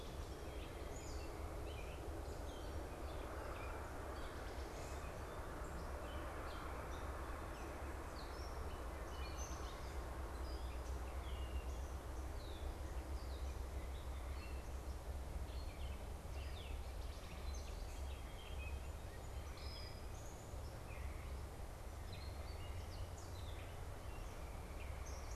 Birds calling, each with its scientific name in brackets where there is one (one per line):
Song Sparrow (Melospiza melodia)
Gray Catbird (Dumetella carolinensis)